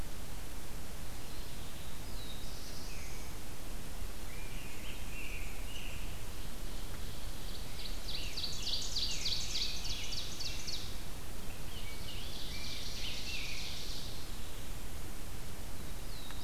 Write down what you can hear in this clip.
Black-throated Blue Warbler, Scarlet Tanager, Ovenbird, Rose-breasted Grosbeak